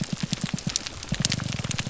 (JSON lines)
{"label": "biophony, grouper groan", "recorder": "SoundTrap 300"}